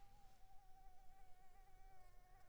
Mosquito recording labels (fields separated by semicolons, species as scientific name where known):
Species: Anopheles arabiensis; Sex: female; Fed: unfed; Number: one; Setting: cup